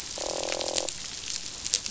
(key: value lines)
label: biophony, croak
recorder: SoundTrap 500